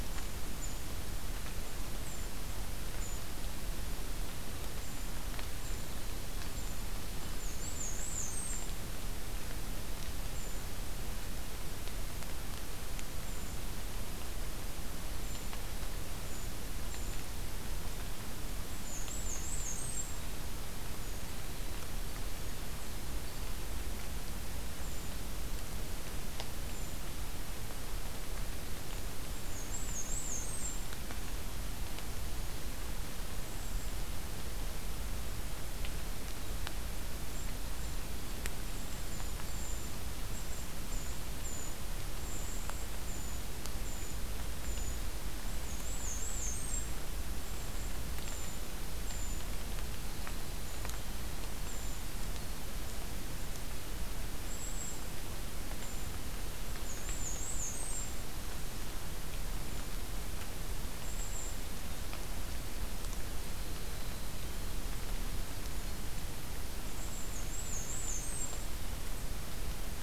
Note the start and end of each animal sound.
[0.00, 6.85] Brown Creeper (Certhia americana)
[7.21, 8.69] Black-and-white Warbler (Mniotilta varia)
[10.28, 10.59] Brown Creeper (Certhia americana)
[13.12, 13.60] Brown Creeper (Certhia americana)
[15.12, 17.23] Brown Creeper (Certhia americana)
[18.67, 20.12] Black-and-white Warbler (Mniotilta varia)
[24.72, 25.16] Brown Creeper (Certhia americana)
[26.59, 27.06] Brown Creeper (Certhia americana)
[29.33, 30.86] Black-and-white Warbler (Mniotilta varia)
[33.42, 34.01] Golden-crowned Kinglet (Regulus satrapa)
[37.24, 52.06] Brown Creeper (Certhia americana)
[42.18, 42.95] Golden-crowned Kinglet (Regulus satrapa)
[45.42, 46.90] Black-and-white Warbler (Mniotilta varia)
[54.38, 55.09] Golden-crowned Kinglet (Regulus satrapa)
[55.72, 56.10] Brown Creeper (Certhia americana)
[56.78, 58.17] Black-and-white Warbler (Mniotilta varia)
[60.89, 61.69] Golden-crowned Kinglet (Regulus satrapa)
[61.81, 64.80] Winter Wren (Troglodytes hiemalis)
[66.85, 68.70] Black-and-white Warbler (Mniotilta varia)

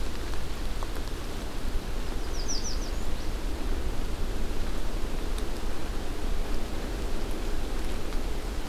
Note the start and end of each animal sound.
[2.01, 3.35] American Redstart (Setophaga ruticilla)

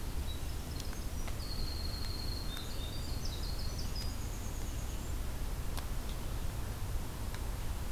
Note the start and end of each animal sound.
[0.00, 5.37] Winter Wren (Troglodytes hiemalis)

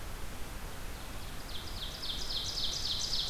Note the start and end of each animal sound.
[0.55, 3.29] Ovenbird (Seiurus aurocapilla)

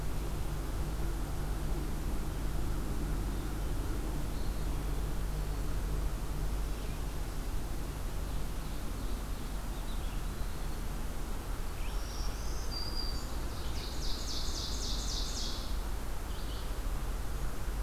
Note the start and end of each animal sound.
[9.77, 10.83] Eastern Wood-Pewee (Contopus virens)
[11.62, 16.68] Red-eyed Vireo (Vireo olivaceus)
[11.90, 13.48] Black-throated Green Warbler (Setophaga virens)
[13.58, 15.90] Ovenbird (Seiurus aurocapilla)

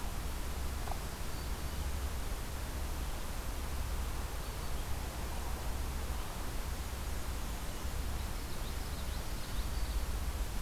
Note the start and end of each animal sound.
[0.74, 1.95] Black-throated Green Warbler (Setophaga virens)
[6.63, 8.11] Black-and-white Warbler (Mniotilta varia)
[7.96, 10.34] Common Yellowthroat (Geothlypis trichas)

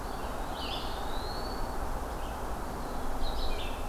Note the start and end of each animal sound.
[0.00, 1.74] Eastern Wood-Pewee (Contopus virens)
[0.06, 2.51] Red-eyed Vireo (Vireo olivaceus)
[2.52, 3.37] Eastern Wood-Pewee (Contopus virens)
[3.04, 3.88] Red-eyed Vireo (Vireo olivaceus)

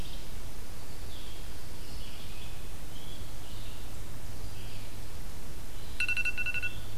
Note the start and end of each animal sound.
[0.00, 5.08] Red-eyed Vireo (Vireo olivaceus)

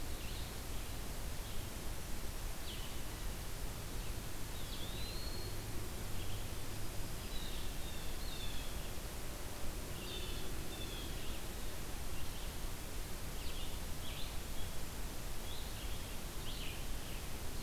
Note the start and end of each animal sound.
[0.00, 17.62] Blue-headed Vireo (Vireo solitarius)
[4.37, 5.67] Eastern Wood-Pewee (Contopus virens)
[6.51, 7.67] Black-throated Green Warbler (Setophaga virens)
[7.21, 8.77] Blue Jay (Cyanocitta cristata)
[9.97, 11.15] Blue Jay (Cyanocitta cristata)
[13.23, 17.62] Red-eyed Vireo (Vireo olivaceus)

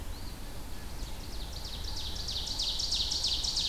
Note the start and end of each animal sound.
[0.00, 0.92] Eastern Phoebe (Sayornis phoebe)
[0.80, 3.64] Ovenbird (Seiurus aurocapilla)

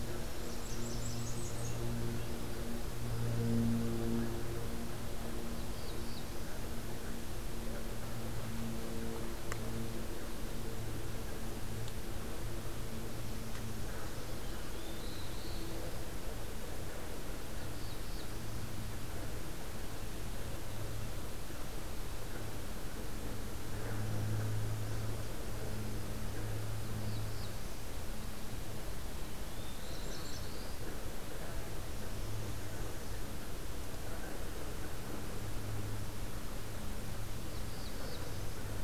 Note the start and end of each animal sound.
[0.00, 1.81] Blackburnian Warbler (Setophaga fusca)
[5.42, 6.50] Black-throated Blue Warbler (Setophaga caerulescens)
[14.26, 16.05] Black-throated Blue Warbler (Setophaga caerulescens)
[17.48, 18.45] Black-throated Blue Warbler (Setophaga caerulescens)
[26.71, 27.86] Black-throated Blue Warbler (Setophaga caerulescens)
[29.22, 30.73] Black-throated Blue Warbler (Setophaga caerulescens)
[29.59, 30.55] Blackburnian Warbler (Setophaga fusca)
[37.22, 38.83] Black-throated Blue Warbler (Setophaga caerulescens)

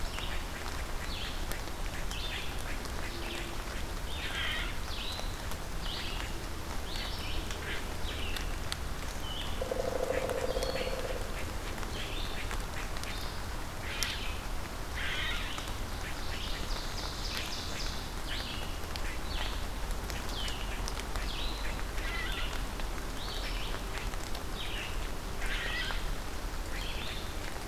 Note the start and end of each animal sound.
[0.00, 8.50] unknown mammal
[0.00, 8.54] Red-eyed Vireo (Vireo olivaceus)
[9.14, 27.67] Red-eyed Vireo (Vireo olivaceus)
[9.40, 11.50] Pileated Woodpecker (Dryocopus pileatus)
[13.77, 15.60] unknown mammal
[15.83, 18.07] Ovenbird (Seiurus aurocapilla)
[21.85, 22.71] unknown mammal

